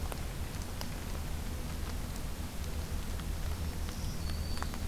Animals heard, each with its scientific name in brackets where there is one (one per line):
Black-throated Green Warbler (Setophaga virens)